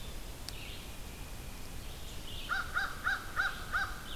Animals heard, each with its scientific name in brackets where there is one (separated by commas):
Red-eyed Vireo (Vireo olivaceus), American Crow (Corvus brachyrhynchos)